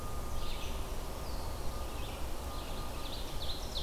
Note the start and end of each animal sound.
[0.00, 3.83] Red-eyed Vireo (Vireo olivaceus)
[2.79, 3.83] Ovenbird (Seiurus aurocapilla)

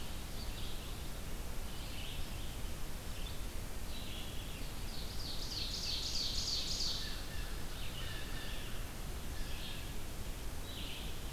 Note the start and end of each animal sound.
[0.00, 11.32] Red-eyed Vireo (Vireo olivaceus)
[4.44, 7.28] Ovenbird (Seiurus aurocapilla)
[6.91, 8.80] Blue Jay (Cyanocitta cristata)

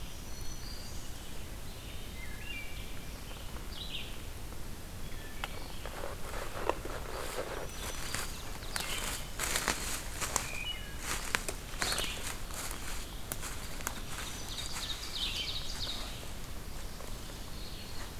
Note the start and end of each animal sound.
[0.00, 1.17] Black-throated Green Warbler (Setophaga virens)
[2.04, 3.14] Wood Thrush (Hylocichla mustelina)
[3.55, 4.33] Red-eyed Vireo (Vireo olivaceus)
[4.92, 5.92] Wood Thrush (Hylocichla mustelina)
[7.29, 9.38] Ovenbird (Seiurus aurocapilla)
[7.51, 8.74] Black-throated Green Warbler (Setophaga virens)
[10.28, 11.21] Wood Thrush (Hylocichla mustelina)
[14.04, 16.13] Ovenbird (Seiurus aurocapilla)
[16.51, 18.19] Black-throated Green Warbler (Setophaga virens)

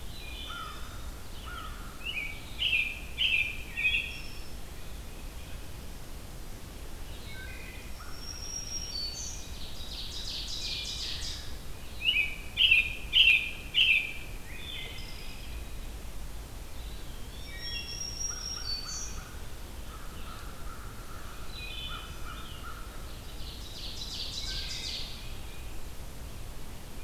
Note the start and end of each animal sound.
[0.14, 1.18] Wood Thrush (Hylocichla mustelina)
[0.25, 2.02] American Crow (Corvus brachyrhynchos)
[2.01, 4.34] American Robin (Turdus migratorius)
[6.92, 7.46] Red-eyed Vireo (Vireo olivaceus)
[7.24, 8.19] Wood Thrush (Hylocichla mustelina)
[7.32, 8.28] American Crow (Corvus brachyrhynchos)
[7.69, 9.51] Black-throated Green Warbler (Setophaga virens)
[9.26, 11.53] Ovenbird (Seiurus aurocapilla)
[11.99, 14.26] American Robin (Turdus migratorius)
[14.40, 15.69] Wood Thrush (Hylocichla mustelina)
[16.65, 17.77] Eastern Wood-Pewee (Contopus virens)
[17.09, 19.27] Black-throated Green Warbler (Setophaga virens)
[17.41, 18.25] Wood Thrush (Hylocichla mustelina)
[18.09, 21.56] American Crow (Corvus brachyrhynchos)
[21.42, 22.33] Wood Thrush (Hylocichla mustelina)
[21.84, 23.00] American Crow (Corvus brachyrhynchos)
[23.24, 25.24] Ovenbird (Seiurus aurocapilla)
[24.38, 25.27] Wood Thrush (Hylocichla mustelina)

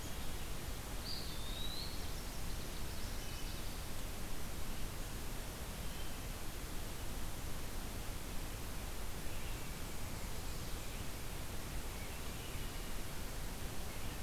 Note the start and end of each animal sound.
[0.89, 2.53] Eastern Wood-Pewee (Contopus virens)
[2.41, 3.84] Chestnut-sided Warbler (Setophaga pensylvanica)
[2.97, 3.69] Wood Thrush (Hylocichla mustelina)
[5.68, 6.39] Wood Thrush (Hylocichla mustelina)
[9.23, 11.03] Black-and-white Warbler (Mniotilta varia)
[9.23, 14.23] Red-eyed Vireo (Vireo olivaceus)
[12.20, 12.95] Wood Thrush (Hylocichla mustelina)

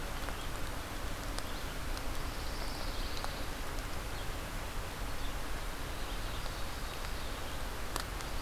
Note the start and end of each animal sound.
[2.16, 3.59] Pine Warbler (Setophaga pinus)
[5.86, 7.73] Ovenbird (Seiurus aurocapilla)

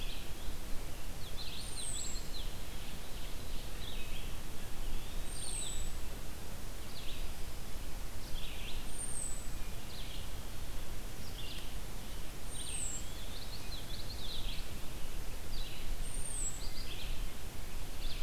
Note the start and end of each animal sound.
[0.00, 11.67] Red-eyed Vireo (Vireo olivaceus)
[1.09, 2.80] Common Yellowthroat (Geothlypis trichas)
[1.58, 2.26] American Robin (Turdus migratorius)
[2.56, 3.87] Ovenbird (Seiurus aurocapilla)
[4.51, 5.51] Eastern Wood-Pewee (Contopus virens)
[5.22, 5.79] American Robin (Turdus migratorius)
[8.80, 9.58] American Robin (Turdus migratorius)
[12.24, 13.67] Eastern Wood-Pewee (Contopus virens)
[12.32, 18.23] Red-eyed Vireo (Vireo olivaceus)
[12.40, 12.99] American Robin (Turdus migratorius)
[12.72, 14.59] Common Yellowthroat (Geothlypis trichas)
[15.95, 16.74] American Robin (Turdus migratorius)

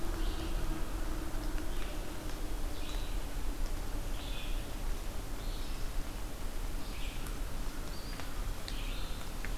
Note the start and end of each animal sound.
[0.07, 9.38] Red-eyed Vireo (Vireo olivaceus)

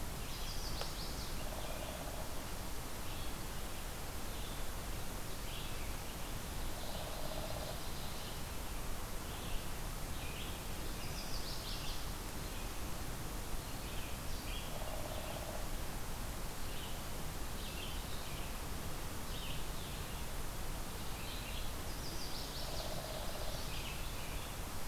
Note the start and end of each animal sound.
[0.00, 24.88] Red-eyed Vireo (Vireo olivaceus)
[0.17, 1.43] Chestnut-sided Warbler (Setophaga pensylvanica)
[6.53, 8.46] Ovenbird (Seiurus aurocapilla)
[10.80, 12.14] Chestnut-sided Warbler (Setophaga pensylvanica)
[21.79, 22.97] Chestnut-sided Warbler (Setophaga pensylvanica)

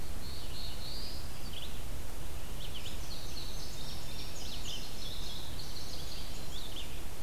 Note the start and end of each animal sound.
[0.00, 1.43] Black-throated Blue Warbler (Setophaga caerulescens)
[0.00, 7.22] Red-eyed Vireo (Vireo olivaceus)
[2.42, 6.97] Indigo Bunting (Passerina cyanea)

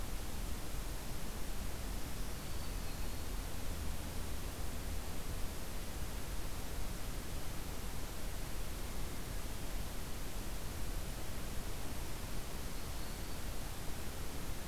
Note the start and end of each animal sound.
[1.91, 2.87] Black-throated Green Warbler (Setophaga virens)

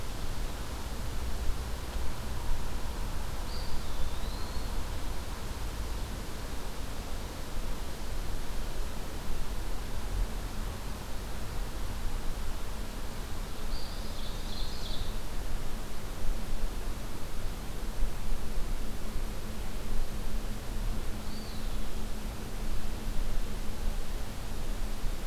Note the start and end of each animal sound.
[3.45, 4.76] Eastern Wood-Pewee (Contopus virens)
[13.59, 14.39] Eastern Wood-Pewee (Contopus virens)
[13.74, 15.22] Ovenbird (Seiurus aurocapilla)
[21.16, 22.50] Eastern Wood-Pewee (Contopus virens)

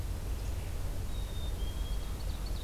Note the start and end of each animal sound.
[1.04, 2.14] Black-capped Chickadee (Poecile atricapillus)
[1.73, 2.63] Ovenbird (Seiurus aurocapilla)

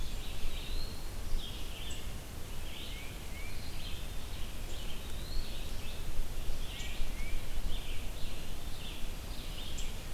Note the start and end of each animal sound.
[0.00, 10.13] Red-eyed Vireo (Vireo olivaceus)
[0.03, 1.13] Eastern Wood-Pewee (Contopus virens)
[2.71, 3.69] Tufted Titmouse (Baeolophus bicolor)
[4.92, 5.60] Eastern Wood-Pewee (Contopus virens)
[6.61, 7.58] Tufted Titmouse (Baeolophus bicolor)

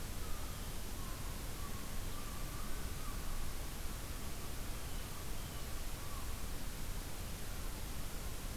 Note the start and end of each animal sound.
[0.08, 3.63] American Herring Gull (Larus smithsonianus)
[4.61, 5.70] Blue Jay (Cyanocitta cristata)

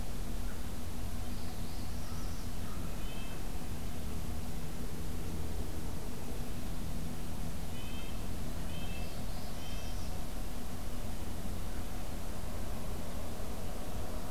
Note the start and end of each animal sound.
[1.15, 2.54] Northern Parula (Setophaga americana)
[1.99, 2.94] American Crow (Corvus brachyrhynchos)
[2.83, 3.40] Red-breasted Nuthatch (Sitta canadensis)
[7.58, 10.14] Red-breasted Nuthatch (Sitta canadensis)
[8.96, 10.21] Northern Parula (Setophaga americana)

